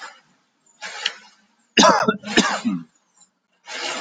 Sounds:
Cough